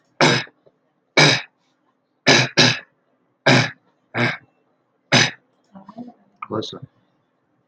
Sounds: Throat clearing